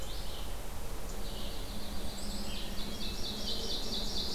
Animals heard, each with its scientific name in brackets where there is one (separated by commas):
Ovenbird (Seiurus aurocapilla), Black-capped Chickadee (Poecile atricapillus), Hermit Thrush (Catharus guttatus), Yellow-rumped Warbler (Setophaga coronata), Red-eyed Vireo (Vireo olivaceus)